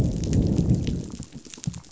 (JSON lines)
{"label": "biophony, growl", "recorder": "SoundTrap 500"}